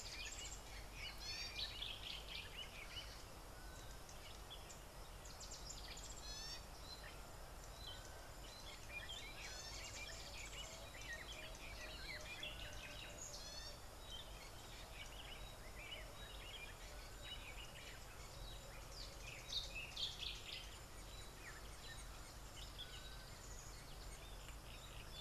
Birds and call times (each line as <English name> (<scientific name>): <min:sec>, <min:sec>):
Gray-backed Camaroptera (Camaroptera brevicaudata): 0:06.3, 0:13.5
Variable Sunbird (Cinnyris venustus): 0:10.5